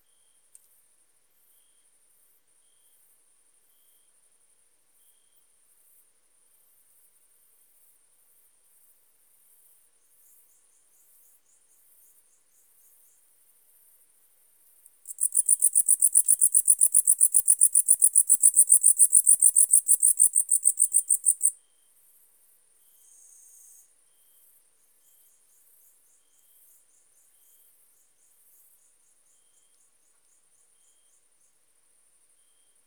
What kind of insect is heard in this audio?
orthopteran